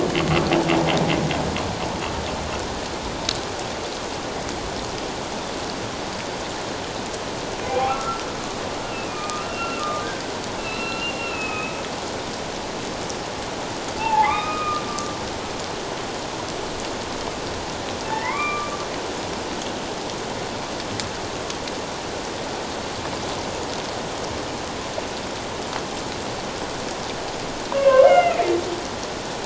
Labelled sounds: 7.7	8.2	humpback whale, 0.78 to 2.5 kHz
8.8	10.1	humpback whale, 1.1 to 2.9 kHz
10.6	11.8	humpback whale, 1.2 to 4.1 kHz
14.0	14.8	humpback whale, 0.78 to 3.8 kHz
18.1	18.7	humpback whale, 0.81 to 2.4 kHz
27.7	28.5	humpback whale, 0.91 to 2.9 kHz

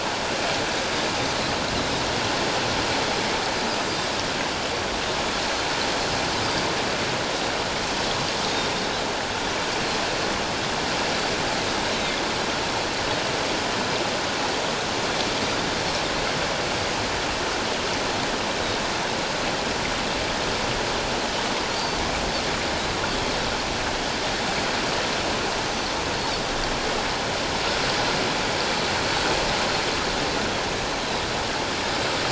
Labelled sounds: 8.4	8.7	Pacific white-sided dolphin, 3.6 to 3.8 kHz

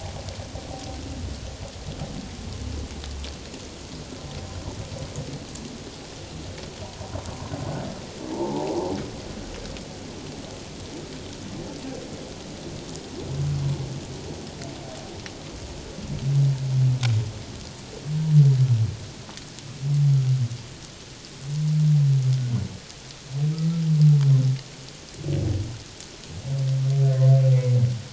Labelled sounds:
8.3	8.7	humpback whale, 0.78 to 1.0 kHz

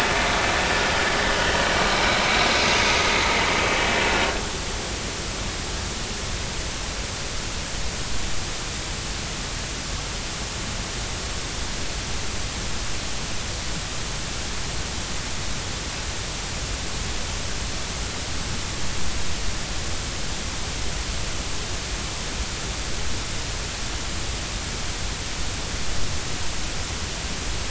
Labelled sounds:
1.3	1.6	vessel noise, 3.0 to 3.2 kHz

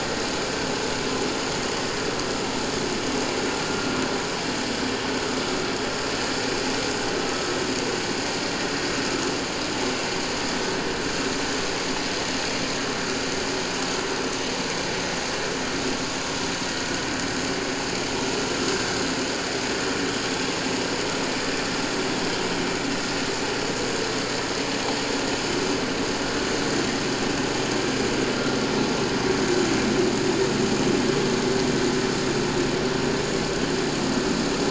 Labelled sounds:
7.3	7.5	humpback whale, 1.2 to 1.3 kHz

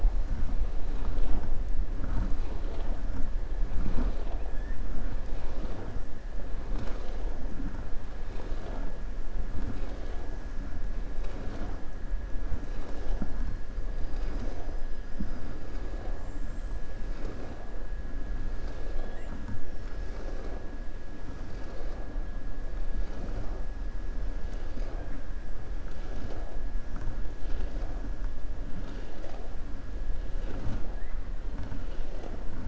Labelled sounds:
16.1	16.9	killer whale, 6.7 to 8.0 kHz

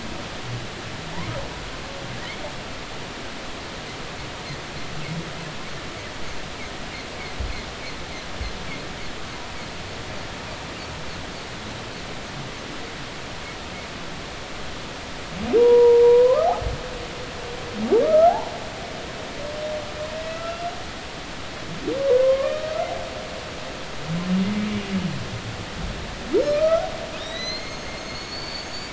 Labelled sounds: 15.6	16.5	humpback whale, 0.90 to 1.3 kHz
18.0	18.5	humpback whale, 0.80 to 1.4 kHz
20.3	20.6	humpback whale, 1.2 to 1.4 kHz
22.1	22.9	humpback whale, 0.93 to 1.4 kHz
26.5	28.9	humpback whale, 1.2 to 6.9 kHz

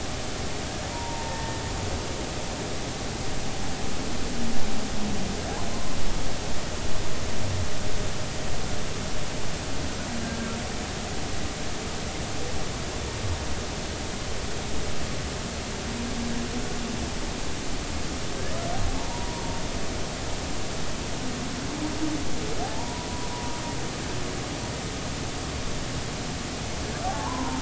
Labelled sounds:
0.9	1.6	humpback whale, 0.86 to 1.9 kHz
19.0	19.6	humpback whale, 0.83 to 1.0 kHz
22.6	23.1	humpback whale, 0.80 to 1.0 kHz
27.0	27.5	humpback whale, 0.80 to 1.2 kHz

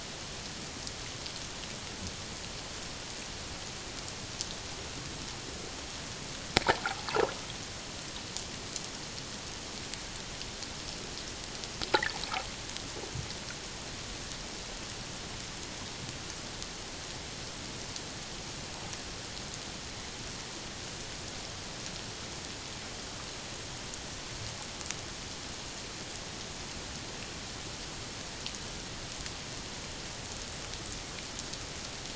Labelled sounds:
6.8	7.1	water noise, 0.78 to 0.91 kHz

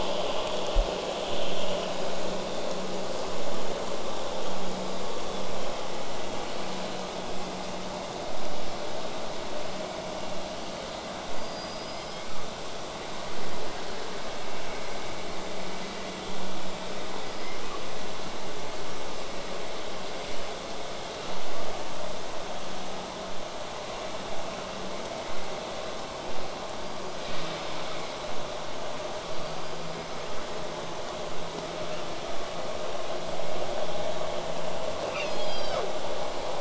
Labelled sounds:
11.3	12.5	killer whale, southern resident, L pod, call S19, 1.0 to 8.0 kHz
17.3	17.8	killer whale, southern resident, L pod, call S19, 0.89 to 5.4 kHz
26.7	27.7	killer whale, southern resident, 4.6 to 5.0 kHz
29.1	30.4	killer whale, southern resident, L pod, call S19, 1.6 to 5.0 kHz
35.1	35.9	killer whale, southern resident, L pod, call S40, 0.27 to 7.5 kHz

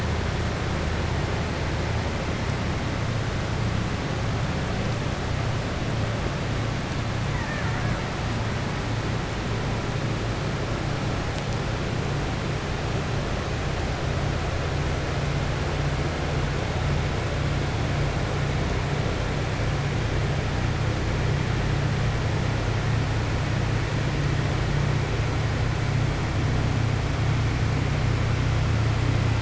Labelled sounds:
7.3	8.0	killer whale, Bigg's (transient), 0.83 to 2.4 kHz

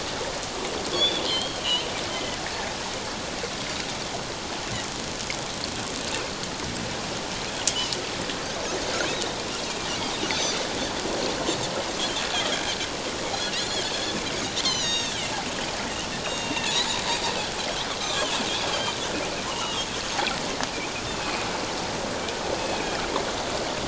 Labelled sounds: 0.9	2.4	Pacific white-sided dolphin, 1.9 to 4.4 kHz
10.3	10.6	Pacific white-sided dolphin, 4.3 to 6.3 kHz
13.5	13.8	Pacific white-sided dolphin, 3.7 to 7.2 kHz
14.6	15.4	Pacific white-sided dolphin, 2.6 to 7.6 kHz
16.2	17.0	Pacific white-sided dolphin, 2.5 to 7.6 kHz
17.6	18.3	Pacific white-sided dolphin, 1.0 to 3.8 kHz
19.5	19.9	Pacific white-sided dolphin, 2.7 to 3.9 kHz
21.1	21.5	Pacific white-sided dolphin, 2.4 to 2.7 kHz
22.5	23.0	Pacific white-sided dolphin, 2.2 to 2.7 kHz

